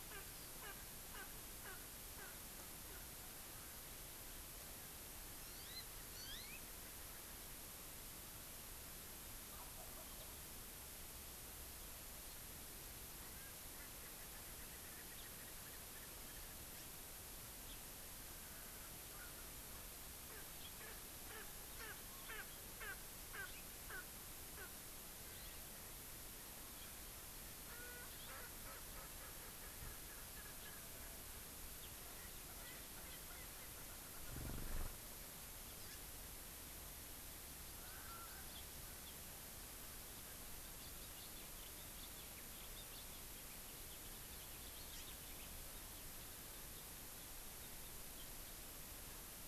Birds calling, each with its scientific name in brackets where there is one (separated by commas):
Hawaii Amakihi (Chlorodrepanis virens), House Finch (Haemorhous mexicanus), Wild Turkey (Meleagris gallopavo), Erckel's Francolin (Pternistis erckelii)